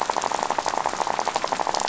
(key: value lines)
label: biophony, rattle
recorder: SoundTrap 500